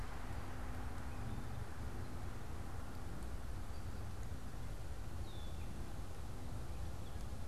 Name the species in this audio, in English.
Gray Catbird